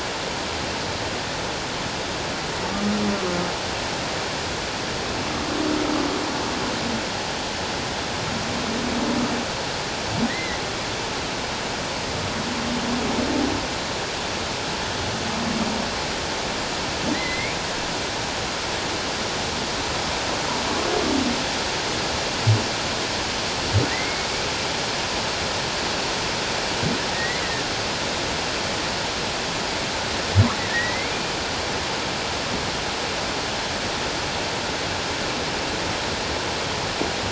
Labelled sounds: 10.3	10.6	humpback whale, 1.7 to 2.2 kHz
17.1	17.6	humpback whale, 1.8 to 4.2 kHz
23.9	24.3	humpback whale, 1.8 to 2.2 kHz
27.1	27.4	humpback whale, 1.8 to 2.2 kHz
30.7	31.2	humpback whale, 1.7 to 2.5 kHz

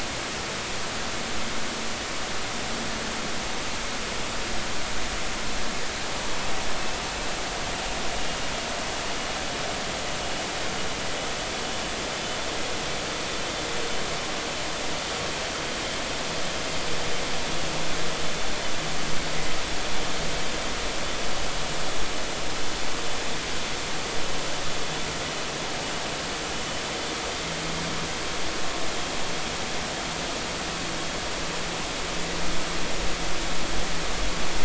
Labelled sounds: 12.1	12.4	vessel noise, 3.0 to 3.1 kHz

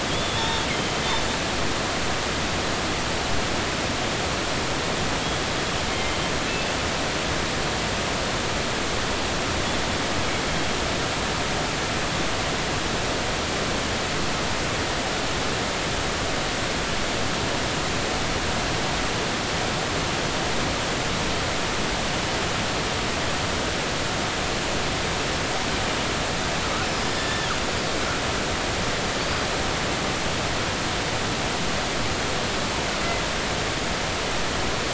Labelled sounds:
0.1	1.0	killer whale, northern resident, G clan, 0.86 to 3.7 kHz
5.9	6.2	killer whale, northern resident, G clan, 2.0 to 2.2 kHz
26.9	27.5	killer whale, northern resident, G clan, 1.7 to 5.2 kHz

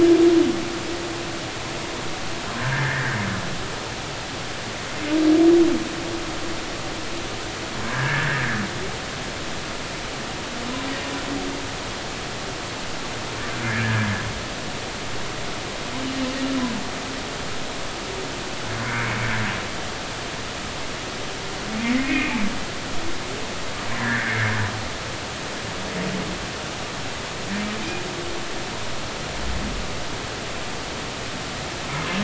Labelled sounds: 2.6	3.2	humpback whale, 1.5 to 2.0 kHz
7.8	8.5	humpback whale, 1.5 to 1.9 kHz
13.6	14.1	humpback whale, 1.5 to 2.5 kHz
21.9	22.5	humpback whale, 1.8 to 2.6 kHz
24.0	24.5	humpback whale, 1.5 to 2.2 kHz

